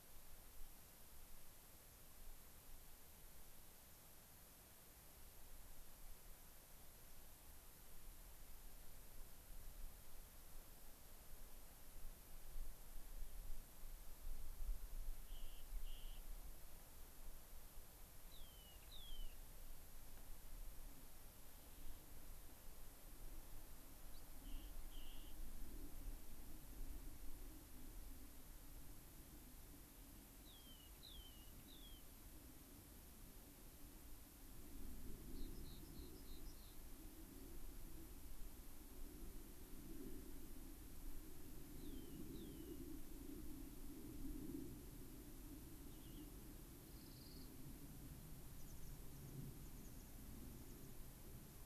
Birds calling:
American Pipit (Anthus rubescens)
unidentified bird
Rock Wren (Salpinctes obsoletus)

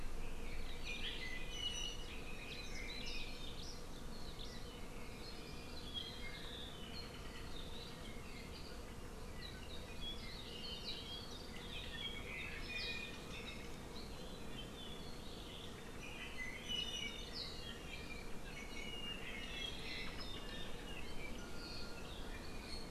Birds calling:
Hawaii Creeper (Loxops mana)
Apapane (Himatione sanguinea)

